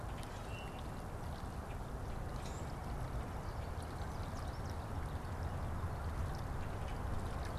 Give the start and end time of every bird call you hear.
0.4s-0.9s: Common Grackle (Quiscalus quiscula)
1.6s-1.9s: Common Grackle (Quiscalus quiscula)
3.1s-7.6s: American Goldfinch (Spinus tristis)
6.5s-7.0s: Common Grackle (Quiscalus quiscula)

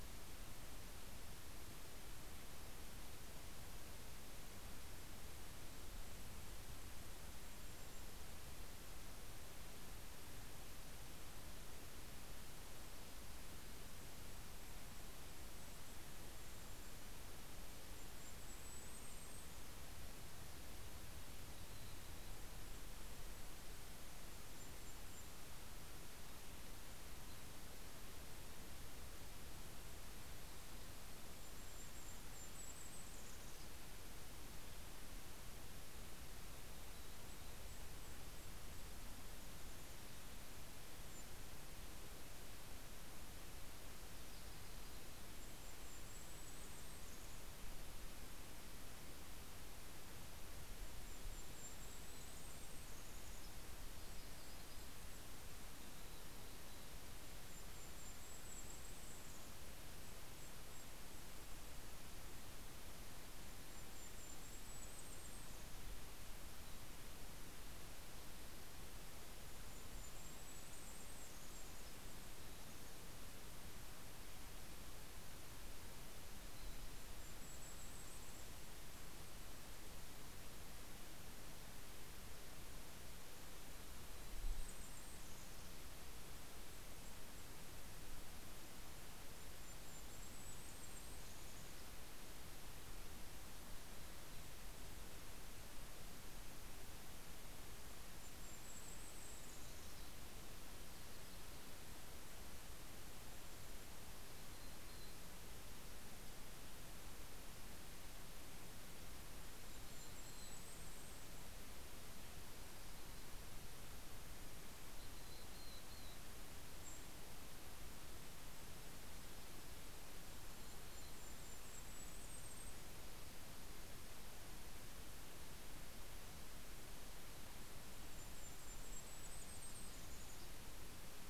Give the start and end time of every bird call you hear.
5.6s-8.8s: Golden-crowned Kinglet (Regulus satrapa)
14.0s-20.3s: Golden-crowned Kinglet (Regulus satrapa)
21.2s-23.2s: Mountain Chickadee (Poecile gambeli)
21.9s-26.1s: Golden-crowned Kinglet (Regulus satrapa)
26.6s-29.1s: Mountain Chickadee (Poecile gambeli)
29.3s-34.4s: Golden-crowned Kinglet (Regulus satrapa)
36.3s-41.9s: Golden-crowned Kinglet (Regulus satrapa)
36.4s-38.0s: Mountain Chickadee (Poecile gambeli)
43.3s-45.9s: Yellow-rumped Warbler (Setophaga coronata)
44.8s-47.9s: Golden-crowned Kinglet (Regulus satrapa)
50.1s-55.5s: Golden-crowned Kinglet (Regulus satrapa)
51.1s-52.6s: Mountain Chickadee (Poecile gambeli)
53.2s-55.5s: Yellow-rumped Warbler (Setophaga coronata)
55.1s-57.4s: Mountain Chickadee (Poecile gambeli)
56.9s-61.5s: Golden-crowned Kinglet (Regulus satrapa)
62.6s-66.6s: Golden-crowned Kinglet (Regulus satrapa)
69.2s-73.2s: Golden-crowned Kinglet (Regulus satrapa)
75.8s-78.6s: Mountain Chickadee (Poecile gambeli)
76.5s-79.5s: Golden-crowned Kinglet (Regulus satrapa)
83.2s-85.0s: Mountain Chickadee (Poecile gambeli)
83.8s-85.6s: Golden-crowned Kinglet (Regulus satrapa)
86.7s-93.3s: Golden-crowned Kinglet (Regulus satrapa)
90.0s-92.5s: Mountain Chickadee (Poecile gambeli)
93.6s-95.2s: Mountain Chickadee (Poecile gambeli)
97.6s-100.6s: Golden-crowned Kinglet (Regulus satrapa)
103.1s-105.9s: Mountain Chickadee (Poecile gambeli)
107.7s-112.0s: Golden-crowned Kinglet (Regulus satrapa)
108.9s-111.4s: Mountain Chickadee (Poecile gambeli)
112.3s-117.2s: Mountain Chickadee (Poecile gambeli)
115.9s-124.1s: Golden-crowned Kinglet (Regulus satrapa)
119.8s-121.4s: Mountain Chickadee (Poecile gambeli)
126.7s-131.3s: Golden-crowned Kinglet (Regulus satrapa)

